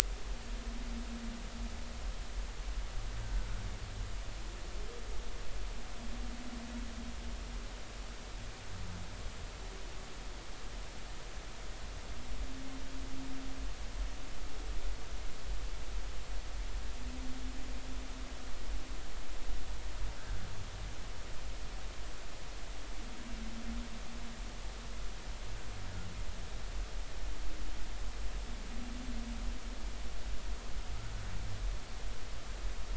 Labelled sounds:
3.2	3.5	humpback whale, 1.5 to 1.6 kHz

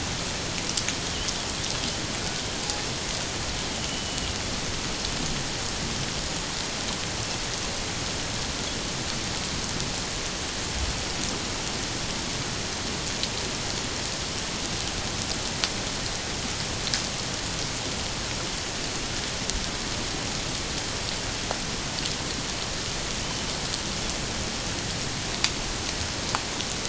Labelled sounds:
3.9	4.4	killer whale, 2.8 to 3.1 kHz

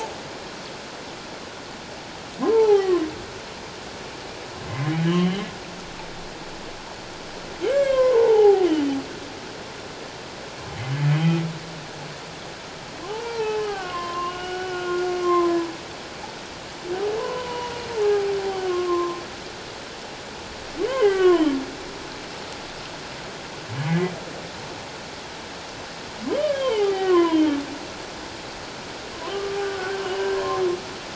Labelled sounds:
2.5	3.0	humpback whale, 0.78 to 2.1 kHz
5.0	5.4	humpback whale, 2.8 to 3.2 kHz
7.6	8.7	humpback whale, 0.78 to 2.3 kHz
13.1	15.7	humpback whale, 0.78 to 3.2 kHz
17.2	19.2	humpback whale, 0.78 to 3.1 kHz
20.8	21.5	humpback whale, 0.91 to 3.3 kHz
23.9	24.1	humpback whale, 1.9 to 2.2 kHz
26.4	27.5	humpback whale, 0.78 to 3.3 kHz
29.1	30.5	humpback whale, 1.1 to 3.2 kHz

